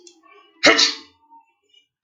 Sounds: Sneeze